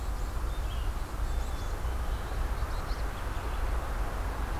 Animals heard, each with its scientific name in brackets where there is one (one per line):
Red-eyed Vireo (Vireo olivaceus)
Black-capped Chickadee (Poecile atricapillus)